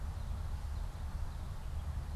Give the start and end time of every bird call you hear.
0.0s-1.7s: Common Yellowthroat (Geothlypis trichas)

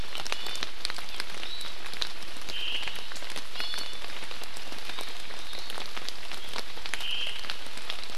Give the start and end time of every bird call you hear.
0.3s-0.7s: Iiwi (Drepanis coccinea)
2.5s-3.0s: Omao (Myadestes obscurus)
3.6s-4.0s: Iiwi (Drepanis coccinea)
6.9s-7.5s: Omao (Myadestes obscurus)

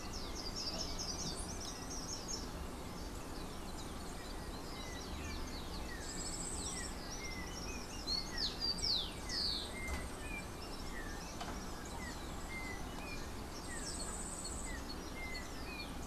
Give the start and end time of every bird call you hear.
0.0s-2.6s: Slate-throated Redstart (Myioborus miniatus)
6.0s-14.9s: Yellow-faced Grassquit (Tiaris olivaceus)
6.5s-16.1s: Rufous-collared Sparrow (Zonotrichia capensis)
6.6s-16.1s: Yellow-backed Oriole (Icterus chrysater)

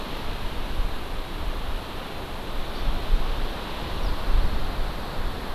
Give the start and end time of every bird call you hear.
2.8s-2.9s: Hawaii Amakihi (Chlorodrepanis virens)
4.0s-4.2s: Eurasian Skylark (Alauda arvensis)

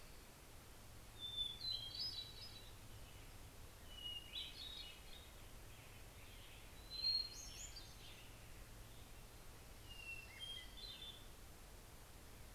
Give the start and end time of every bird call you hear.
0.0s-5.9s: Hermit Thrush (Catharus guttatus)
6.5s-12.5s: Hermit Thrush (Catharus guttatus)

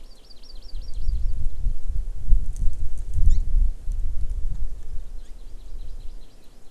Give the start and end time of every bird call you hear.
0.0s-1.3s: Hawaii Amakihi (Chlorodrepanis virens)
3.2s-3.4s: Hawaii Amakihi (Chlorodrepanis virens)
5.1s-6.6s: Hawaii Amakihi (Chlorodrepanis virens)

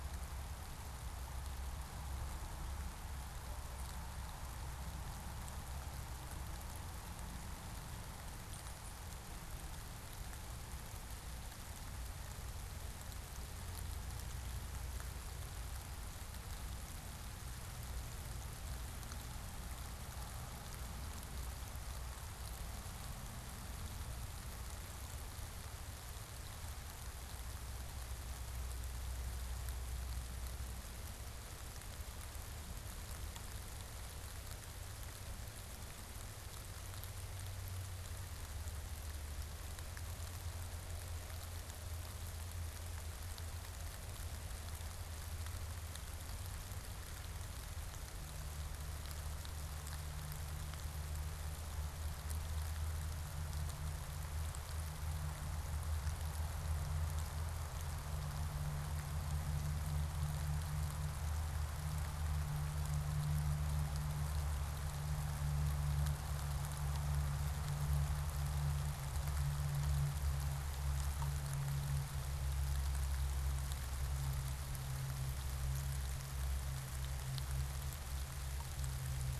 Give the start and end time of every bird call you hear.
8.4s-9.0s: unidentified bird

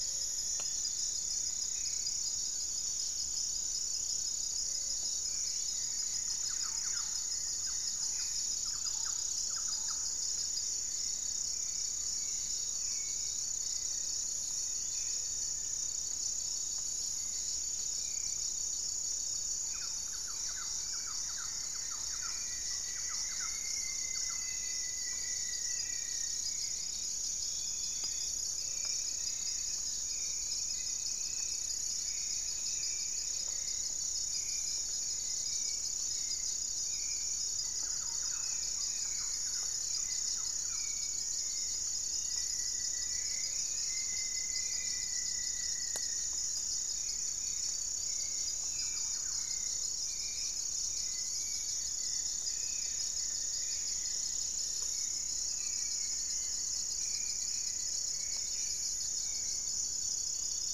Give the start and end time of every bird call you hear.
0.0s-2.1s: Black-faced Antthrush (Formicarius analis)
0.0s-4.0s: Dusky-throated Antshrike (Thamnomanes ardesiacus)
0.0s-15.6s: Gray-fronted Dove (Leptotila rufaxilla)
0.0s-60.7s: Hauxwell's Thrush (Turdus hauxwelli)
4.9s-8.6s: Goeldi's Antbird (Akletos goeldii)
6.1s-10.5s: Thrush-like Wren (Campylorhynchus turdinus)
8.0s-8.5s: Black-faced Antthrush (Formicarius analis)
13.4s-15.1s: Gray Antwren (Myrmotherula menetriesii)
13.8s-15.8s: Black-faced Antthrush (Formicarius analis)
19.5s-24.7s: Thrush-like Wren (Campylorhynchus turdinus)
20.6s-23.1s: Goeldi's Antbird (Akletos goeldii)
21.7s-26.7s: Rufous-fronted Antthrush (Formicarius rufifrons)
27.9s-30.2s: Black-faced Antthrush (Formicarius analis)
28.4s-33.9s: Gray-fronted Dove (Leptotila rufaxilla)
30.6s-33.8s: Goeldi's Antbird (Akletos goeldii)
37.4s-40.7s: Goeldi's Antbird (Akletos goeldii)
37.4s-40.9s: Thrush-like Wren (Campylorhynchus turdinus)
38.1s-40.0s: Black-spotted Bare-eye (Phlegopsis nigromaculata)
41.7s-42.6s: Bluish-fronted Jacamar (Galbula cyanescens)
41.7s-46.5s: Rufous-fronted Antthrush (Formicarius rufifrons)
45.8s-54.4s: Goeldi's Antbird (Akletos goeldii)
48.3s-49.7s: Thrush-like Wren (Campylorhynchus turdinus)
52.5s-52.8s: Black-spotted Bare-eye (Phlegopsis nigromaculata)
53.4s-55.0s: unidentified bird
54.5s-56.9s: Black-faced Antthrush (Formicarius analis)

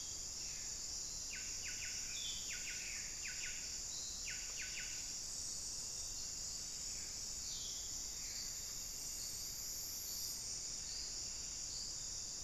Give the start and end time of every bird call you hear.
0.0s-0.7s: unidentified bird
0.0s-8.6s: Buff-breasted Wren (Cantorchilus leucotis)
2.0s-2.6s: unidentified bird
3.9s-4.3s: Forest Elaenia (Myiopagis gaimardii)
7.4s-8.0s: unidentified bird

